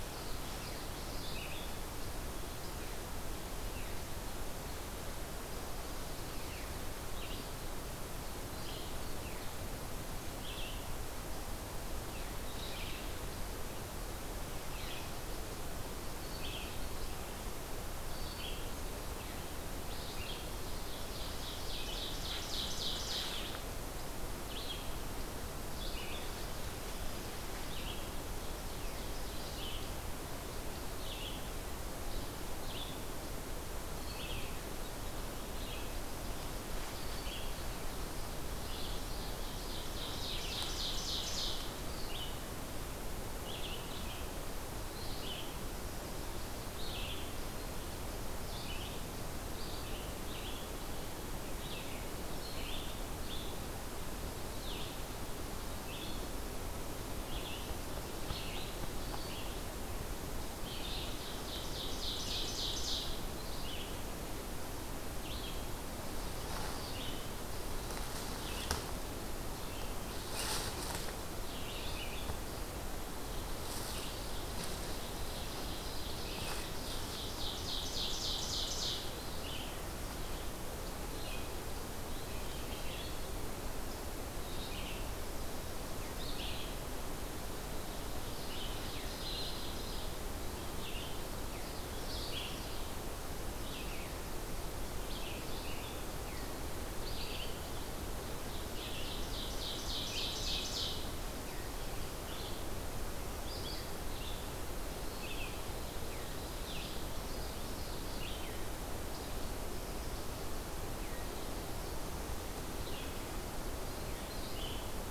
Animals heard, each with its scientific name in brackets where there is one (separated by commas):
Ovenbird (Seiurus aurocapilla), Common Yellowthroat (Geothlypis trichas), Red-eyed Vireo (Vireo olivaceus)